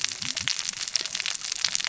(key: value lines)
label: biophony, cascading saw
recorder: SoundTrap 600 or HydroMoth